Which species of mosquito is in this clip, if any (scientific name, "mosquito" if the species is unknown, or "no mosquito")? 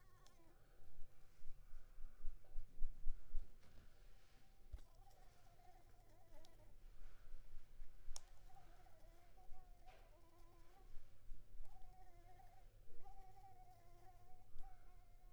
Anopheles arabiensis